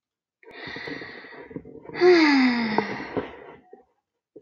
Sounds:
Sigh